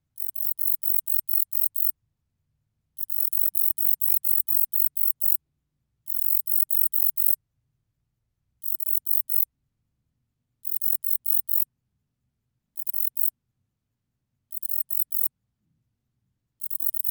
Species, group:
Bicolorana bicolor, Orthoptera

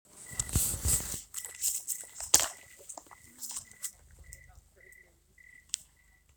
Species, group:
Oecanthus fultoni, Orthoptera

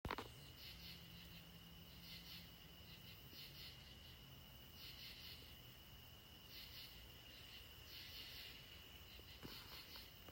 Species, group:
Pterophylla camellifolia, Orthoptera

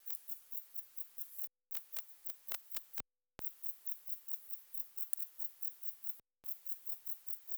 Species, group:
Rhacocleis baccettii, Orthoptera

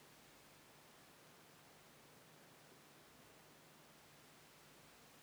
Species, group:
Chorthippus biguttulus, Orthoptera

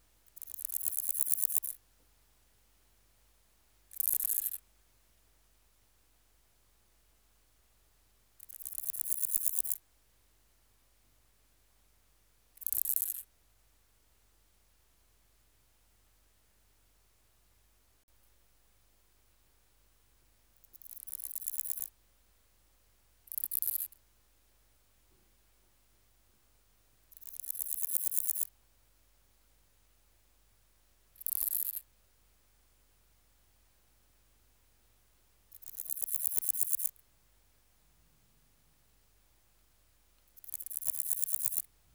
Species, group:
Pseudochorthippus parallelus, Orthoptera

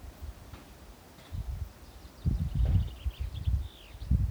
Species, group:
Isophya pyrenaea, Orthoptera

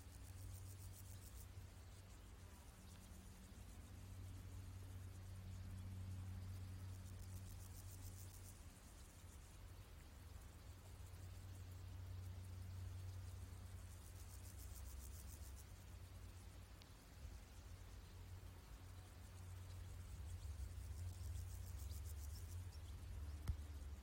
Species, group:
Pseudochorthippus parallelus, Orthoptera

